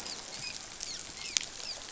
{"label": "biophony, dolphin", "recorder": "SoundTrap 500"}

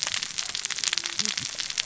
{"label": "biophony, cascading saw", "recorder": "SoundTrap 600 or HydroMoth"}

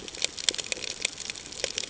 {"label": "ambient", "recorder": "HydroMoth"}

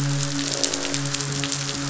{"label": "biophony, croak", "recorder": "SoundTrap 500"}
{"label": "biophony, midshipman", "recorder": "SoundTrap 500"}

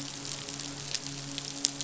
{"label": "biophony, midshipman", "recorder": "SoundTrap 500"}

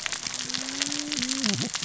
{"label": "biophony, cascading saw", "recorder": "SoundTrap 600 or HydroMoth"}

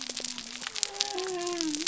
{"label": "biophony", "recorder": "SoundTrap 300"}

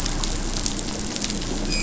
{"label": "anthrophony, boat engine", "recorder": "SoundTrap 500"}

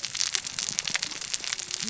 {"label": "biophony, cascading saw", "recorder": "SoundTrap 600 or HydroMoth"}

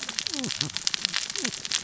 {"label": "biophony, cascading saw", "recorder": "SoundTrap 600 or HydroMoth"}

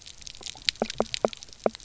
{"label": "biophony, knock croak", "recorder": "SoundTrap 300"}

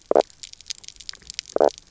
{"label": "biophony, knock croak", "recorder": "SoundTrap 300"}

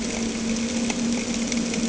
{"label": "anthrophony, boat engine", "recorder": "HydroMoth"}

